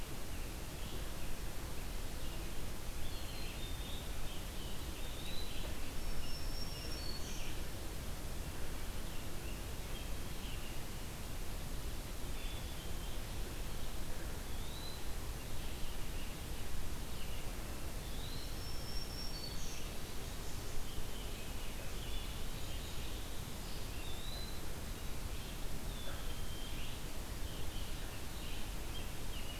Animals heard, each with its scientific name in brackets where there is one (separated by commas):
American Robin (Turdus migratorius), Black-capped Chickadee (Poecile atricapillus), Black-throated Green Warbler (Setophaga virens), Red-eyed Vireo (Vireo olivaceus), Rose-breasted Grosbeak (Pheucticus ludovicianus), Eastern Wood-Pewee (Contopus virens)